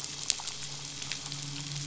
{"label": "biophony, midshipman", "recorder": "SoundTrap 500"}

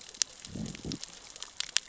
{"label": "biophony, growl", "recorder": "SoundTrap 600 or HydroMoth"}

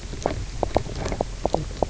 {"label": "biophony, knock croak", "recorder": "SoundTrap 300"}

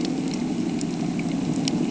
{"label": "anthrophony, boat engine", "recorder": "HydroMoth"}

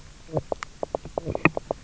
{"label": "biophony, knock croak", "recorder": "SoundTrap 300"}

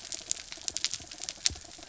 {"label": "anthrophony, mechanical", "recorder": "SoundTrap 300"}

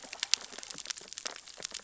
{"label": "biophony, sea urchins (Echinidae)", "recorder": "SoundTrap 600 or HydroMoth"}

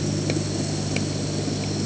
{"label": "anthrophony, boat engine", "recorder": "HydroMoth"}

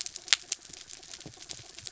{"label": "anthrophony, mechanical", "recorder": "SoundTrap 300"}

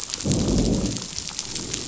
{"label": "biophony, growl", "recorder": "SoundTrap 500"}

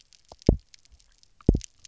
{"label": "biophony, double pulse", "recorder": "SoundTrap 300"}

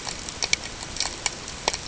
{"label": "ambient", "recorder": "HydroMoth"}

